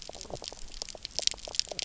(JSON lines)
{"label": "biophony, knock croak", "recorder": "SoundTrap 300"}